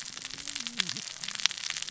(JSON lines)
{"label": "biophony, cascading saw", "recorder": "SoundTrap 600 or HydroMoth"}